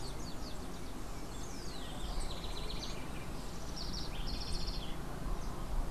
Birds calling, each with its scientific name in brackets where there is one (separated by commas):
House Wren (Troglodytes aedon)